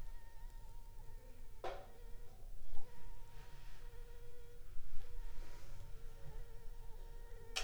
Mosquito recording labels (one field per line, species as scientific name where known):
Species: Anopheles funestus s.s.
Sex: female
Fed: unfed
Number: one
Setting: cup